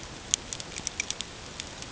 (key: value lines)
label: ambient
recorder: HydroMoth